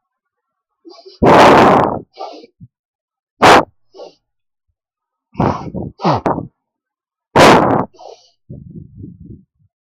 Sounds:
Sniff